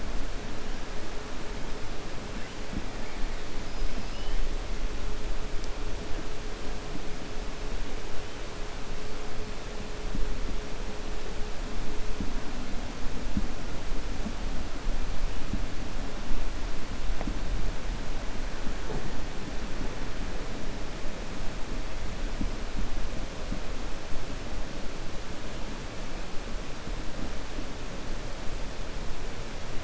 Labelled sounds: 3.7	4.3	killer whale, 4.5 to 5.2 kHz

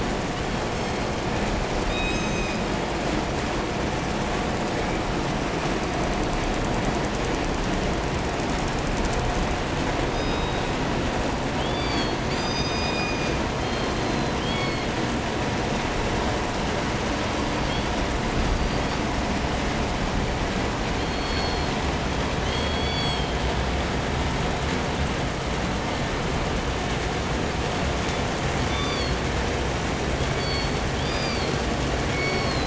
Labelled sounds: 0.3	1.4	killer whale, southern resident, call S16, 1.9 to 8.0 kHz
1.8	2.9	killer whale, southern resident, call S17, 1.9 to 8.0 kHz
10.0	10.9	killer whale, southern resident, call S17, 2.3 to 8.0 kHz
11.4	12.3	killer whale, 2.2 to 8.0 kHz
12.1	13.5	killer whale, southern resident, call S17, 2.1 to 8.0 kHz
13.5	15.0	killer whale, southern resident, call S16, 1.9 to 4.9 kHz
17.0	18.0	killer whale, southern resident, 2.9 to 5.0 kHz
18.3	19.2	killer whale, southern resident, 2.9 to 5.0 kHz
20.9	21.8	killer whale, southern resident, call S16, 1.5 to 8.0 kHz
22.3	23.4	killer whale, southern resident, call S16, 1.8 to 8.0 kHz
27.8	28.4	killer whale, southern resident, 1.2 to 7.1 kHz
28.6	29.2	killer whale, 0.96 to 7.5 kHz
30.0	31.0	killer whale, southern resident, call S16, 0.90 to 5.1 kHz
30.9	31.7	killer whale, 1.4 to 6.5 kHz
31.9	32.6	killer whale, southern resident, call S16, 0.90 to 6.9 kHz

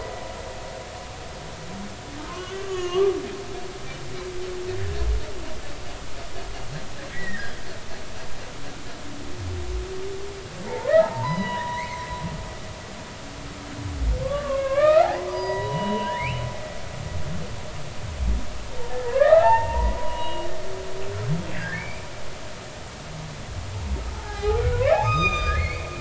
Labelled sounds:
2.3	3.1	humpback whale, 0.99 to 3.1 kHz
7.1	7.6	humpback whale, 1.5 to 3.4 kHz
10.7	12.0	humpback whale, 0.80 to 5.0 kHz
14.2	16.5	humpback whale, 0.90 to 5.0 kHz
19.0	20.5	humpback whale, 0.80 to 2.9 kHz
21.5	22.0	humpback whale, 1.5 to 2.6 kHz
24.1	25.8	humpback whale, 0.80 to 6.4 kHz

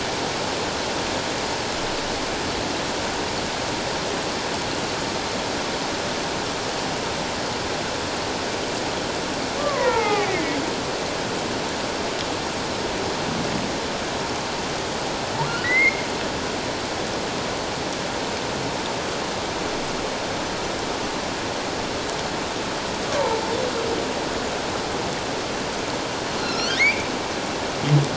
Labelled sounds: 9.6	10.6	humpback whale, 0.78 to 2.6 kHz
15.5	16.1	humpback whale, 1.3 to 2.3 kHz
23.1	23.4	humpback whale, 0.84 to 1.2 kHz
26.4	27.1	humpback whale, 1.3 to 6.1 kHz

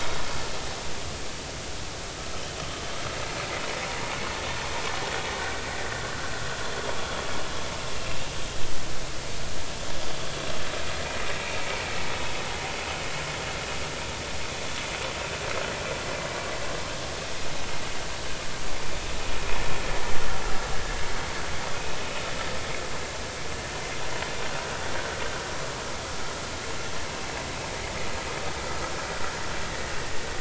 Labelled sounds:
8.0	8.2	vessel noise, 2.6 to 2.8 kHz

